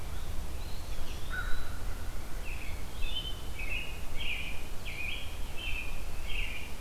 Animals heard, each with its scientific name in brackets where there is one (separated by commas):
American Crow (Corvus brachyrhynchos), Eastern Wood-Pewee (Contopus virens), American Robin (Turdus migratorius)